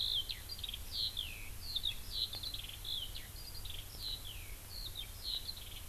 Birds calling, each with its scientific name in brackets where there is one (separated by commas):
Eurasian Skylark (Alauda arvensis)